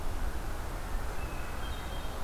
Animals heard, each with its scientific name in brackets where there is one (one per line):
Hermit Thrush (Catharus guttatus)